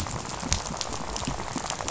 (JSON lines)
{"label": "biophony, rattle", "recorder": "SoundTrap 500"}